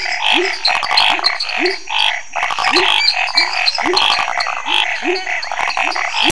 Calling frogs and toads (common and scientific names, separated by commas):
lesser tree frog (Dendropsophus minutus), pepper frog (Leptodactylus labyrinthicus), Chaco tree frog (Boana raniceps), dwarf tree frog (Dendropsophus nanus), Scinax fuscovarius, rufous frog (Leptodactylus fuscus)